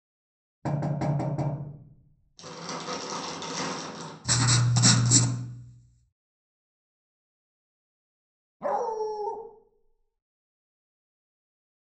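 At 0.62 seconds, knocking is audible. Then, at 2.36 seconds, crackling is heard. Afterwards, at 4.24 seconds, the loud sound of writing comes through. Finally, at 8.6 seconds, a dog can be heard.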